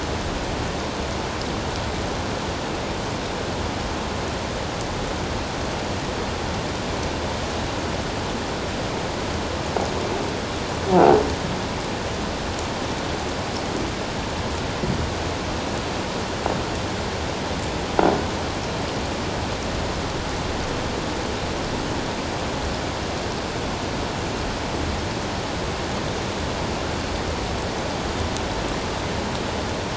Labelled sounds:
10.9	11.2	croaking sound likely from a nearby submerged object, 0.78 to 0.94 kHz

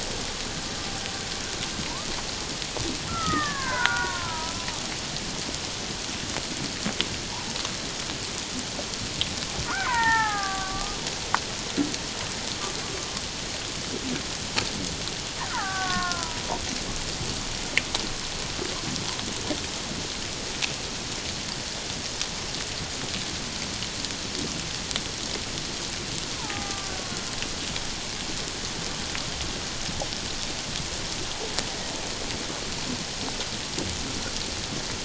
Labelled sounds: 3.1	4.5	killer whale, Bigg's (transient), 0.88 to 2.2 kHz
9.6	11.0	killer whale, Bigg's (transient), 0.78 to 2.4 kHz
15.5	16.4	killer whale, Bigg's (transient), 0.78 to 2.1 kHz
26.3	26.9	killer whale, Bigg's (transient), 0.78 to 1.4 kHz

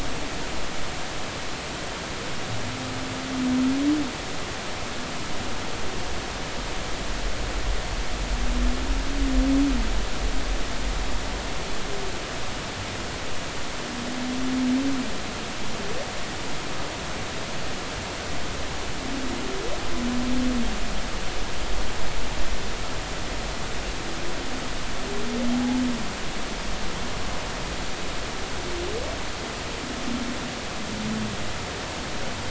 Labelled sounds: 25.5	25.8	humpback whale, 0.80 to 0.93 kHz

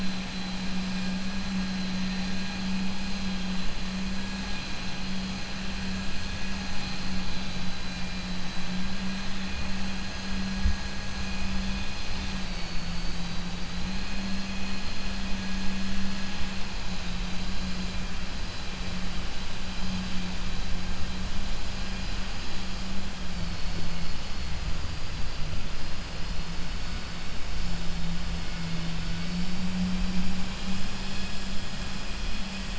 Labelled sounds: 12.1	13.6	vessel noise, 3.0 to 4.7 kHz

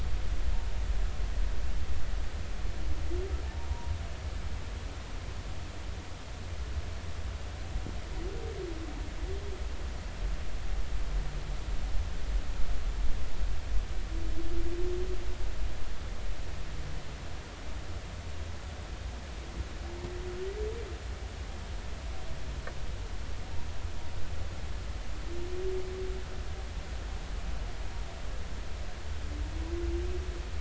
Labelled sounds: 3.4	3.9	humpback whale, 0.86 to 1.0 kHz

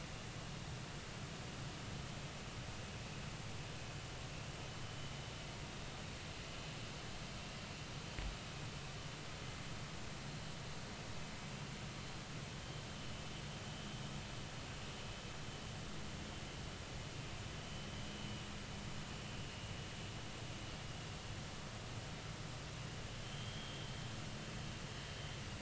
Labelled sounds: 13.0	13.2	vessel noise, 2.9 to 3.0 kHz
19.4	19.7	vessel noise, 2.7 to 2.9 kHz
23.2	23.8	vessel noise, 3.0 to 3.4 kHz

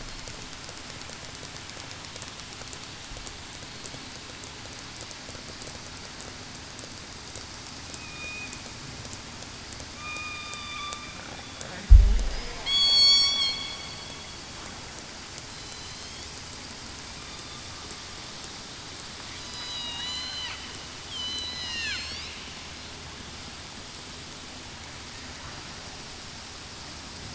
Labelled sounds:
7.9	8.5	killer whale, southern resident, 2.4 to 2.6 kHz
9.9	10.9	killer whale, southern resident, 1.1 to 1.3 kHz
12.6	13.5	killer whale, southern resident, 1.1 to 8.0 kHz
15.5	16.1	killer whale, southern resident, 4.0 to 4.3 kHz
19.4	20.5	killer whale, southern resident, 4.8 to 6.2 kHz
21.1	22.0	killer whale, southern resident, 2.2 to 3.5 kHz

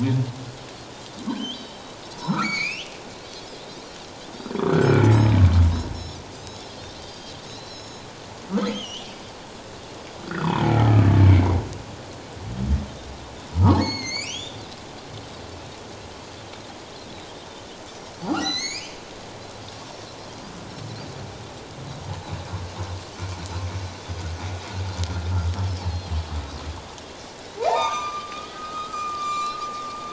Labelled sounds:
1.2	1.7	Pacific white-sided dolphin, 1.5 to 3.6 kHz
2.1	3.0	humpback whale, 0.84 to 6.9 kHz
3.6	3.9	Pacific white-sided dolphin, 3.7 to 4.1 kHz
4.6	5.3	humpback whale, 1.1 to 2.4 kHz
5.1	5.4	Pacific white-sided dolphin, 7.5 to 7.9 kHz
5.9	6.7	Pacific white-sided dolphin, 3.8 to 5.5 kHz
7.0	8.1	Pacific white-sided dolphin, 3.9 to 6.9 kHz
8.7	9.4	humpback whale, 2.8 to 6.0 kHz
10.3	11.6	humpback whale, 0.78 to 3.7 kHz
13.7	14.6	humpback whale, 2.0 to 7.2 kHz
18.3	18.9	humpback whale, 1.1 to 7.2 kHz
25.8	26.2	Pacific white-sided dolphin, 3.9 to 4.4 kHz
27.6	29.6	humpback whale, 0.78 to 7.2 kHz

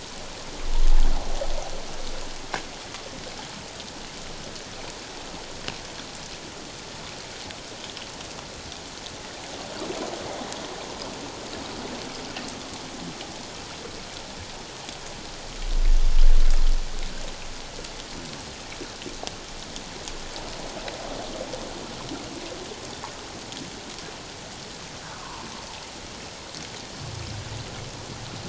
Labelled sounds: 25.1	25.5	water noise, 0.88 to 1.5 kHz

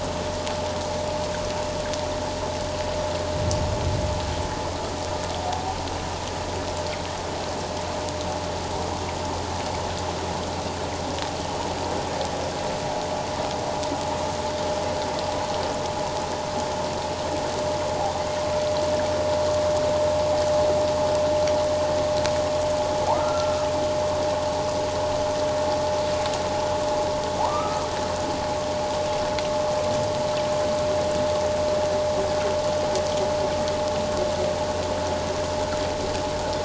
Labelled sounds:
23.1	23.7	humpback whale, 0.78 to 1.4 kHz
27.4	27.8	humpback whale, 0.78 to 1.3 kHz

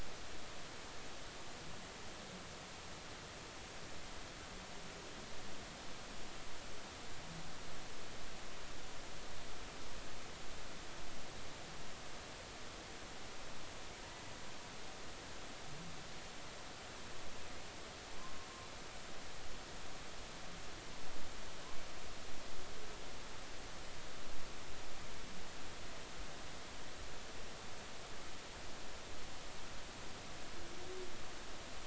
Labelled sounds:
18.2	18.5	humpback whale, 0.99 to 1.1 kHz

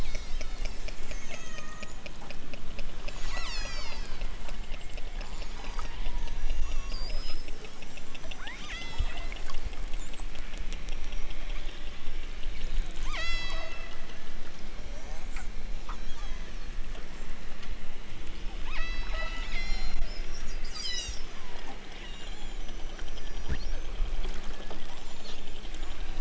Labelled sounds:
0.0	2.1	killer whale, southern Alaska resident, 0.73 to 8.0 kHz
3.1	4.4	killer whale, southern Alaska resident, 0.69 to 8.0 kHz
5.4	6.0	killer whale, southern Alaska resident, 4.0 to 8.0 kHz
6.2	7.0	killer whale, southern Alaska resident, 1.9 to 6.3 kHz
8.3	9.3	killer whale, southern Alaska resident, 0.87 to 8.0 kHz
13.0	14.0	killer whale, southern Alaska resident, 0.46 to 8.0 kHz
15.8	16.6	killer whale, southern Alaska resident, 2.5 to 7.0 kHz
18.6	20.1	killer whale, southern Alaska resident, 0.69 to 7.4 kHz
20.5	21.3	killer whale, southern Alaska resident, 1.6 to 8.0 kHz
22.1	22.8	killer whale, southern Alaska resident, 2.2 to 7.0 kHz
23.0	23.7	killer whale, southern Alaska resident, 3.9 to 7.1 kHz

